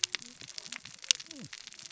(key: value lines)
label: biophony, cascading saw
recorder: SoundTrap 600 or HydroMoth